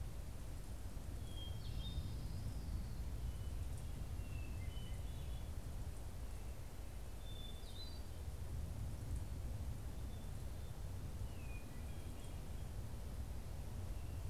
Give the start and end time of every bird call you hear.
[1.14, 2.74] Hermit Thrush (Catharus guttatus)
[1.24, 3.34] Orange-crowned Warbler (Leiothlypis celata)
[3.14, 5.74] Hermit Thrush (Catharus guttatus)
[6.64, 8.94] Hermit Thrush (Catharus guttatus)
[9.44, 13.04] Hermit Thrush (Catharus guttatus)

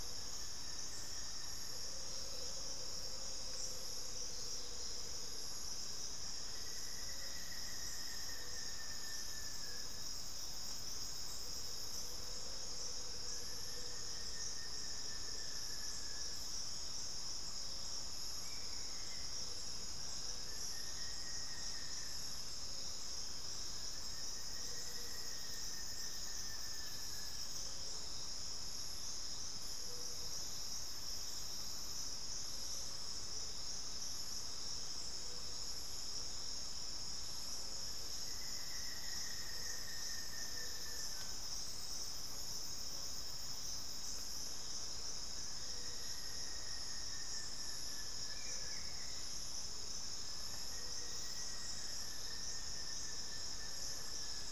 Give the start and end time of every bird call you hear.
[0.00, 27.80] Buff-throated Woodcreeper (Xiphorhynchus guttatus)
[1.60, 5.50] Amazonian Motmot (Momotus momota)
[11.30, 16.60] Amazonian Motmot (Momotus momota)
[24.70, 25.00] Amazonian Motmot (Momotus momota)
[37.70, 54.51] Buff-throated Woodcreeper (Xiphorhynchus guttatus)

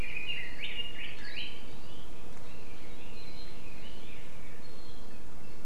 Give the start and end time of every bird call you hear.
[0.00, 1.65] Red-billed Leiothrix (Leiothrix lutea)
[2.44, 4.54] Red-billed Leiothrix (Leiothrix lutea)

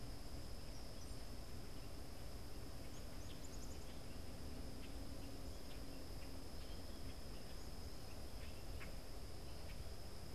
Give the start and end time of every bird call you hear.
[0.00, 4.16] Black-capped Chickadee (Poecile atricapillus)
[2.86, 10.16] Common Grackle (Quiscalus quiscula)

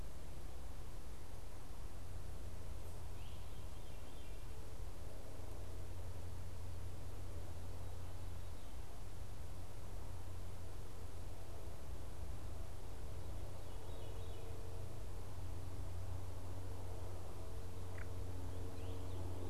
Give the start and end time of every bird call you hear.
[0.00, 15.20] Veery (Catharus fuscescens)
[3.00, 3.60] Great Crested Flycatcher (Myiarchus crinitus)

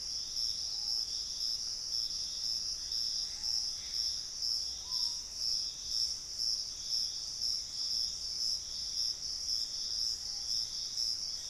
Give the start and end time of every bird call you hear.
[0.50, 11.49] Screaming Piha (Lipaugus vociferans)
[1.80, 4.50] Gray Antbird (Cercomacra cinerascens)

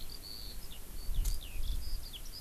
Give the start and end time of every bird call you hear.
[0.00, 2.41] Eurasian Skylark (Alauda arvensis)

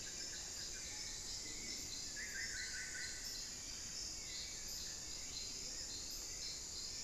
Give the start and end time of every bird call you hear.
[0.00, 3.42] Solitary Black Cacique (Cacicus solitarius)
[0.00, 7.03] Hauxwell's Thrush (Turdus hauxwelli)

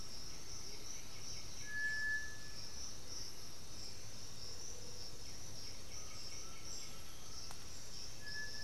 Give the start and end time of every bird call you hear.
[0.00, 0.92] Amazonian Motmot (Momotus momota)
[0.00, 4.12] Great Antshrike (Taraba major)
[0.12, 7.22] White-winged Becard (Pachyramphus polychopterus)
[5.82, 7.62] Undulated Tinamou (Crypturellus undulatus)

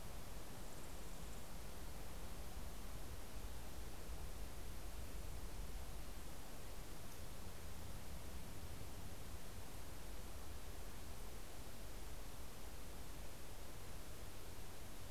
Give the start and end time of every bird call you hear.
[0.00, 1.90] Mountain Chickadee (Poecile gambeli)

